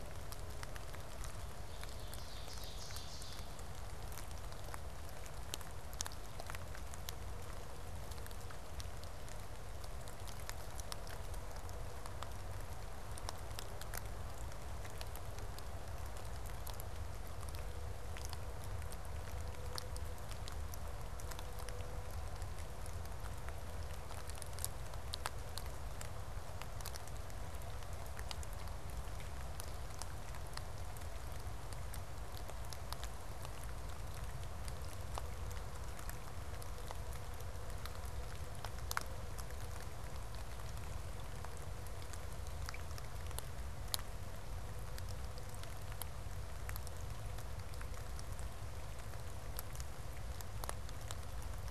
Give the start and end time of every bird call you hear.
[1.40, 3.60] Ovenbird (Seiurus aurocapilla)

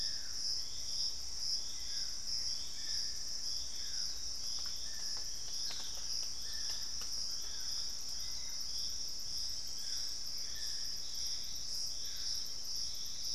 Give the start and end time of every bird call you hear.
[0.00, 13.35] Dusky-throated Antshrike (Thamnomanes ardesiacus)
[5.49, 6.49] Black-spotted Bare-eye (Phlegopsis nigromaculata)

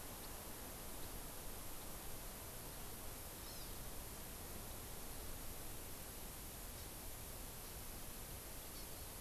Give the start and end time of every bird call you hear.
[3.43, 3.73] Hawaii Amakihi (Chlorodrepanis virens)
[6.73, 6.93] Hawaii Amakihi (Chlorodrepanis virens)
[8.73, 8.83] Hawaii Amakihi (Chlorodrepanis virens)

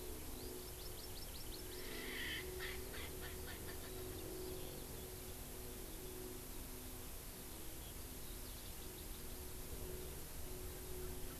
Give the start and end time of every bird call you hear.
[0.39, 1.99] Hawaii Amakihi (Chlorodrepanis virens)
[1.99, 4.19] Erckel's Francolin (Pternistis erckelii)
[8.49, 9.39] Hawaii Amakihi (Chlorodrepanis virens)

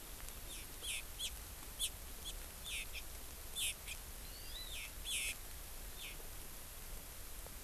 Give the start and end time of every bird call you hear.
[0.45, 1.35] Hawaii Amakihi (Chlorodrepanis virens)
[1.75, 1.95] Hawaii Amakihi (Chlorodrepanis virens)
[2.25, 2.35] Hawaii Amakihi (Chlorodrepanis virens)
[2.65, 3.05] Hawaii Amakihi (Chlorodrepanis virens)
[3.55, 3.75] Hawaii Amakihi (Chlorodrepanis virens)
[4.25, 4.75] Hawaii Amakihi (Chlorodrepanis virens)
[5.05, 5.35] Hawaii Amakihi (Chlorodrepanis virens)

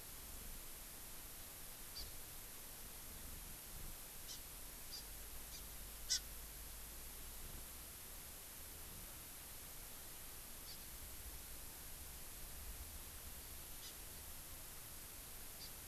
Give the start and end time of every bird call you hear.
[1.95, 2.05] Hawaii Amakihi (Chlorodrepanis virens)
[4.25, 4.35] Hawaii Amakihi (Chlorodrepanis virens)
[4.85, 5.05] Hawaii Amakihi (Chlorodrepanis virens)
[5.45, 5.55] Hawaii Amakihi (Chlorodrepanis virens)
[6.05, 6.25] Hawaii Amakihi (Chlorodrepanis virens)
[10.65, 10.75] Hawaii Amakihi (Chlorodrepanis virens)
[13.75, 13.95] Hawaii Amakihi (Chlorodrepanis virens)
[15.55, 15.65] Hawaii Amakihi (Chlorodrepanis virens)

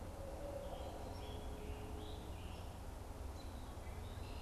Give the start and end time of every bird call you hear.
[0.00, 1.12] Barred Owl (Strix varia)
[0.00, 4.42] Red-eyed Vireo (Vireo olivaceus)
[3.52, 4.42] Eastern Wood-Pewee (Contopus virens)

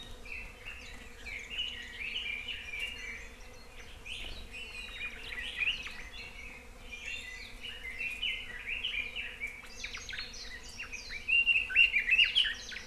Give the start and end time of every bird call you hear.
[0.23, 3.23] Red-billed Leiothrix (Leiothrix lutea)
[4.53, 4.92] Iiwi (Drepanis coccinea)
[4.92, 9.62] Red-billed Leiothrix (Leiothrix lutea)
[9.82, 10.32] Omao (Myadestes obscurus)
[10.43, 12.82] Red-billed Leiothrix (Leiothrix lutea)

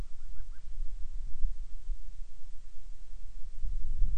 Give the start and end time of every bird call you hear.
[0.00, 0.80] Band-rumped Storm-Petrel (Hydrobates castro)

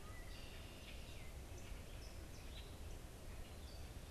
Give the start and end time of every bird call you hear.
[0.00, 4.10] Gray Catbird (Dumetella carolinensis)
[0.20, 1.10] Red-winged Blackbird (Agelaius phoeniceus)

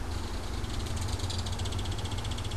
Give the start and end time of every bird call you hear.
[0.00, 2.57] Belted Kingfisher (Megaceryle alcyon)

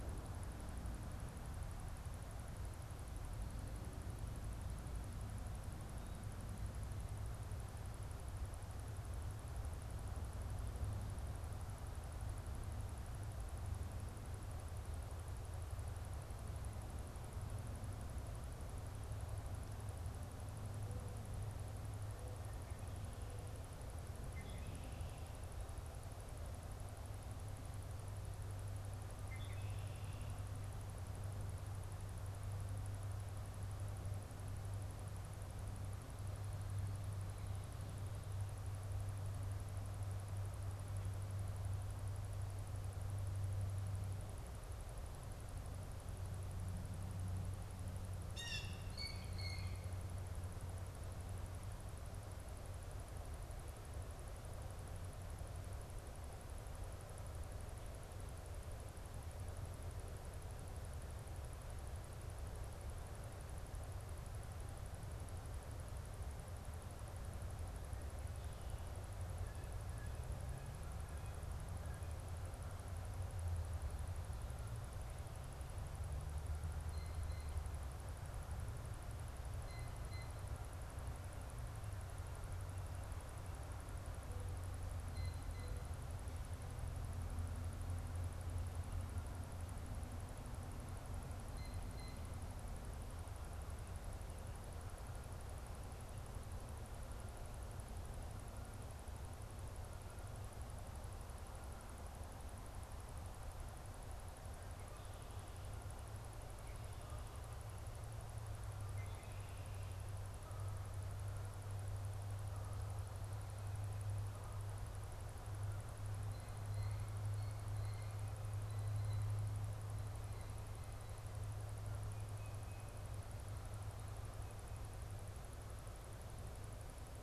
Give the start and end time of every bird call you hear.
[24.20, 25.50] Red-winged Blackbird (Agelaius phoeniceus)
[29.10, 30.60] Red-winged Blackbird (Agelaius phoeniceus)
[48.20, 49.90] Blue Jay (Cyanocitta cristata)
[69.10, 72.30] Blue Jay (Cyanocitta cristata)
[76.30, 80.40] Blue Jay (Cyanocitta cristata)
[84.90, 85.90] Blue Jay (Cyanocitta cristata)
[91.30, 92.30] Blue Jay (Cyanocitta cristata)
[110.20, 114.70] Canada Goose (Branta canadensis)
[116.00, 119.60] Blue Jay (Cyanocitta cristata)

